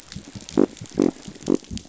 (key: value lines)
label: biophony
recorder: SoundTrap 500